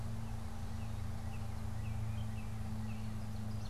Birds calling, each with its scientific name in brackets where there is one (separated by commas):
Northern Cardinal (Cardinalis cardinalis), Ovenbird (Seiurus aurocapilla)